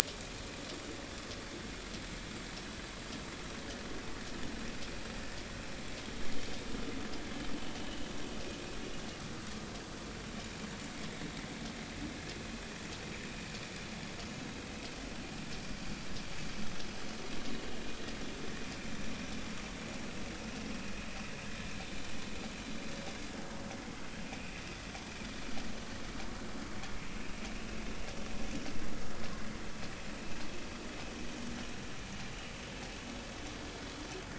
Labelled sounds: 7.8	8.1	vessel noise, 2.8 to 3.1 kHz

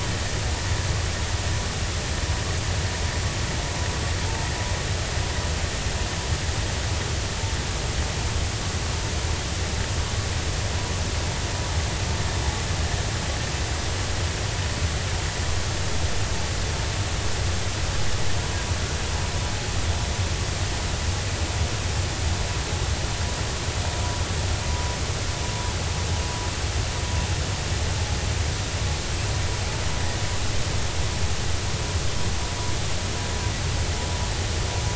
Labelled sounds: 24.7	25.0	vessel noise, 0.93 to 1.0 kHz

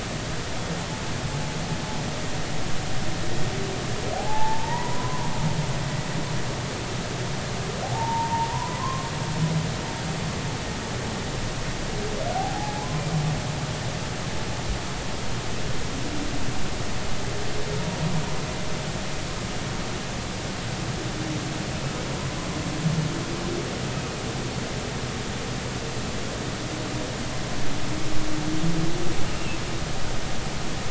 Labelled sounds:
4.1	5.3	humpback whale, 0.80 to 2.0 kHz
7.8	9.1	humpback whale, 0.80 to 1.1 kHz
12.3	12.9	humpback whale, 0.80 to 0.90 kHz
24.0	24.2	humpback whale, 2.4 to 2.6 kHz
29.3	29.6	humpback whale, 2.6 to 2.8 kHz

